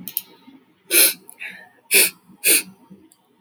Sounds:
Sniff